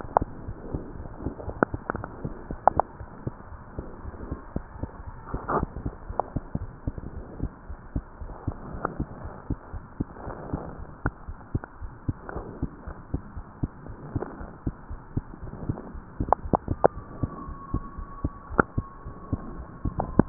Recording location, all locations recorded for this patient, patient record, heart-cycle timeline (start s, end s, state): pulmonary valve (PV)
aortic valve (AV)+pulmonary valve (PV)+tricuspid valve (TV)+mitral valve (MV)
#Age: Child
#Sex: Male
#Height: 76.0 cm
#Weight: 9.4 kg
#Pregnancy status: False
#Murmur: Present
#Murmur locations: mitral valve (MV)+tricuspid valve (TV)
#Most audible location: tricuspid valve (TV)
#Systolic murmur timing: Early-systolic
#Systolic murmur shape: Decrescendo
#Systolic murmur grading: I/VI
#Systolic murmur pitch: Low
#Systolic murmur quality: Blowing
#Diastolic murmur timing: nan
#Diastolic murmur shape: nan
#Diastolic murmur grading: nan
#Diastolic murmur pitch: nan
#Diastolic murmur quality: nan
#Outcome: Abnormal
#Campaign: 2015 screening campaign
0.00	7.52	unannotated
7.52	7.68	diastole
7.68	7.77	S1
7.77	7.94	systole
7.94	8.04	S2
8.04	8.19	diastole
8.19	8.30	S1
8.30	8.45	systole
8.45	8.55	S2
8.55	8.68	diastole
8.68	8.82	S1
8.82	8.98	systole
8.98	9.08	S2
9.08	9.22	diastole
9.22	9.32	S1
9.32	9.48	systole
9.48	9.58	S2
9.58	9.74	diastole
9.74	9.84	S1
9.84	10.00	systole
10.00	10.10	S2
10.10	10.28	diastole
10.28	10.38	S1
10.38	10.52	systole
10.52	10.63	S2
10.63	10.77	diastole
10.77	10.86	S1
10.86	11.04	systole
11.04	11.14	S2
11.14	11.28	diastole
11.28	11.36	S1
11.36	11.54	systole
11.54	11.64	S2
11.64	11.82	diastole
11.82	11.92	S1
11.92	12.06	systole
12.06	12.16	S2
12.16	12.32	diastole
12.32	12.44	S1
12.44	12.60	systole
12.60	12.72	S2
12.72	12.86	diastole
12.86	12.96	S1
12.96	13.12	systole
13.12	13.22	S2
13.22	13.36	diastole
13.36	13.46	S1
13.46	13.62	systole
13.62	13.74	S2
13.74	13.86	diastole
13.86	13.96	S1
13.96	14.12	systole
14.12	14.28	S2
14.28	14.38	diastole
14.38	14.50	S1
14.50	14.66	systole
14.66	14.76	S2
14.76	14.92	diastole
14.92	15.00	S1
15.00	15.14	systole
15.14	15.26	S2
15.26	15.42	diastole
15.42	15.50	S1
15.50	20.29	unannotated